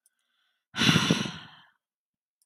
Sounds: Sigh